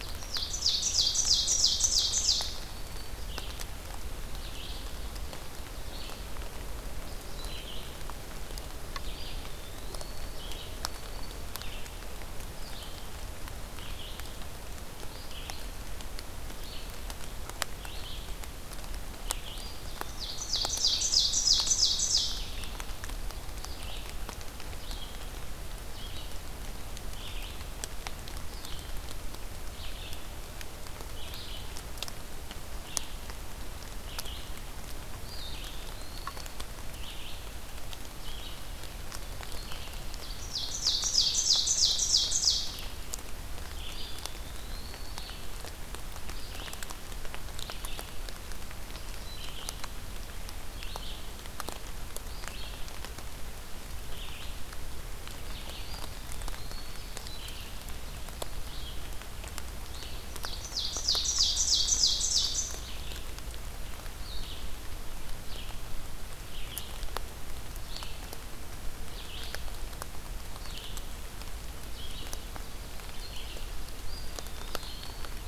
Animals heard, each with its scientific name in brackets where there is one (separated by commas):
Ovenbird (Seiurus aurocapilla), Red-eyed Vireo (Vireo olivaceus), Eastern Wood-Pewee (Contopus virens), Black-throated Green Warbler (Setophaga virens)